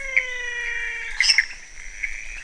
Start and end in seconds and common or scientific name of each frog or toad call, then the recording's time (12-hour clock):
0.0	1.5	menwig frog
0.0	2.4	pointedbelly frog
0.0	2.4	Pithecopus azureus
1.1	1.5	waxy monkey tree frog
1.1	1.5	lesser tree frog
1:00am